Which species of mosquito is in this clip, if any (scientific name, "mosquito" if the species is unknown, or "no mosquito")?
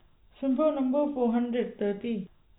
no mosquito